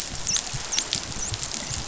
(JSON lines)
{"label": "biophony, dolphin", "recorder": "SoundTrap 500"}